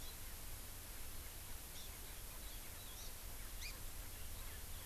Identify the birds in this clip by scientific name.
Chlorodrepanis virens